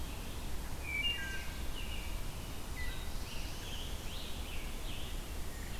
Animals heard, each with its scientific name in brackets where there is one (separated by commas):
Black-throated Blue Warbler (Setophaga caerulescens), Red-eyed Vireo (Vireo olivaceus), Scarlet Tanager (Piranga olivacea), Wood Thrush (Hylocichla mustelina), American Robin (Turdus migratorius)